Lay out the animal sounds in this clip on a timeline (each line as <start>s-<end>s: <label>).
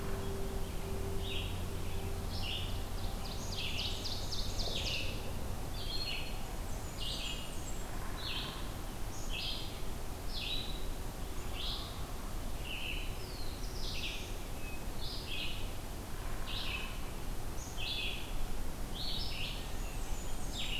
0.0s-20.8s: Red-eyed Vireo (Vireo olivaceus)
2.3s-2.7s: Black-capped Chickadee (Poecile atricapillus)
3.3s-5.4s: Ovenbird (Seiurus aurocapilla)
6.5s-8.1s: Blackburnian Warbler (Setophaga fusca)
9.0s-9.4s: Black-capped Chickadee (Poecile atricapillus)
13.0s-14.5s: Black-throated Blue Warbler (Setophaga caerulescens)
17.4s-18.0s: Black-capped Chickadee (Poecile atricapillus)
19.6s-20.8s: Blackburnian Warbler (Setophaga fusca)